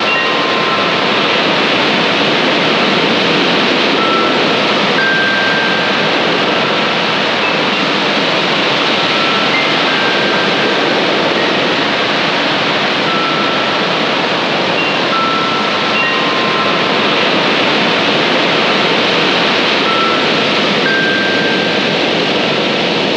How is the weather?
windy